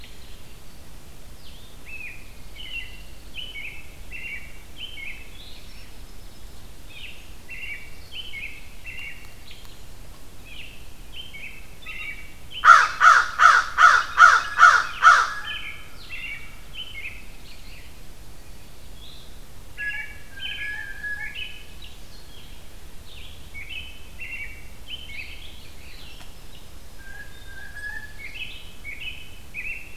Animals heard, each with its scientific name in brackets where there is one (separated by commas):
Red-eyed Vireo (Vireo olivaceus), American Crow (Corvus brachyrhynchos), American Robin (Turdus migratorius), Pine Warbler (Setophaga pinus), Blue Jay (Cyanocitta cristata), Blue-headed Vireo (Vireo solitarius)